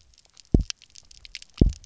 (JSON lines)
{"label": "biophony, double pulse", "recorder": "SoundTrap 300"}